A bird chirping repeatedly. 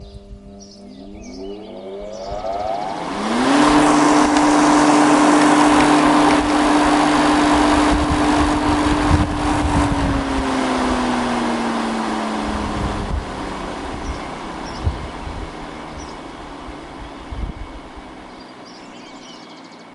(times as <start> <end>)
0.0 2.5